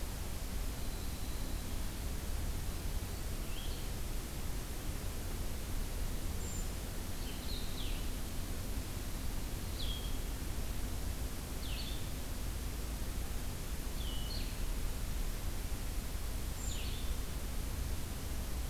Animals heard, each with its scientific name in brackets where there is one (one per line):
Winter Wren (Troglodytes hiemalis)
Blue-headed Vireo (Vireo solitarius)
Brown Creeper (Certhia americana)